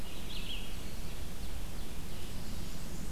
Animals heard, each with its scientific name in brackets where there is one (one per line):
Black-and-white Warbler (Mniotilta varia)
Red-eyed Vireo (Vireo olivaceus)
Ovenbird (Seiurus aurocapilla)